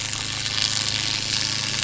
{"label": "anthrophony, boat engine", "recorder": "SoundTrap 500"}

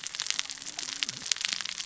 {"label": "biophony, cascading saw", "recorder": "SoundTrap 600 or HydroMoth"}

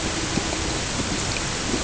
{"label": "ambient", "recorder": "HydroMoth"}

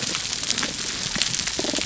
{"label": "biophony", "recorder": "SoundTrap 300"}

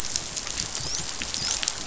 {"label": "biophony, dolphin", "recorder": "SoundTrap 500"}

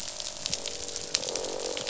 {"label": "biophony, croak", "recorder": "SoundTrap 500"}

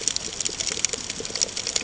{"label": "ambient", "recorder": "HydroMoth"}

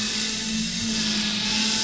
{"label": "anthrophony, boat engine", "recorder": "SoundTrap 500"}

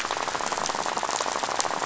{"label": "biophony, rattle", "recorder": "SoundTrap 500"}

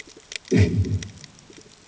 {"label": "anthrophony, bomb", "recorder": "HydroMoth"}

